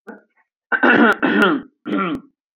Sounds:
Throat clearing